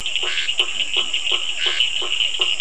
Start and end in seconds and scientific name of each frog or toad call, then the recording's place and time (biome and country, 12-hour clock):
0.2	2.6	Boana faber
0.2	2.6	Physalaemus cuvieri
0.2	2.6	Scinax perereca
0.7	1.2	Leptodactylus latrans
Atlantic Forest, Brazil, 7:30pm